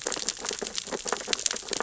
{"label": "biophony, sea urchins (Echinidae)", "recorder": "SoundTrap 600 or HydroMoth"}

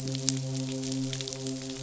{"label": "biophony, midshipman", "recorder": "SoundTrap 500"}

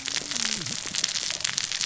{"label": "biophony, cascading saw", "recorder": "SoundTrap 600 or HydroMoth"}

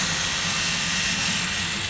{"label": "anthrophony, boat engine", "recorder": "SoundTrap 500"}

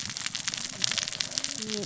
{"label": "biophony, cascading saw", "recorder": "SoundTrap 600 or HydroMoth"}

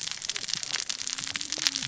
{"label": "biophony, cascading saw", "recorder": "SoundTrap 600 or HydroMoth"}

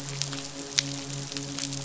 {"label": "biophony, midshipman", "recorder": "SoundTrap 500"}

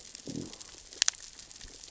{"label": "biophony, growl", "recorder": "SoundTrap 600 or HydroMoth"}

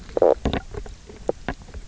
{"label": "biophony, knock croak", "recorder": "SoundTrap 300"}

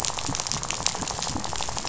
{"label": "biophony, rattle", "recorder": "SoundTrap 500"}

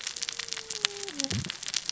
{"label": "biophony, cascading saw", "recorder": "SoundTrap 600 or HydroMoth"}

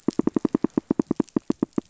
{"label": "biophony, rattle", "recorder": "SoundTrap 500"}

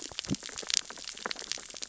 {"label": "biophony, cascading saw", "recorder": "SoundTrap 600 or HydroMoth"}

